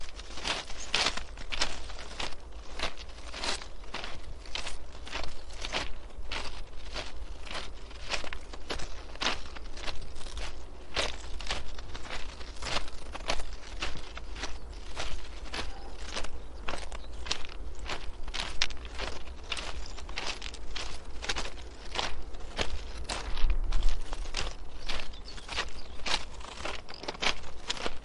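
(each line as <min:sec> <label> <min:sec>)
0:00.1 Footsteps on gravel. 0:28.0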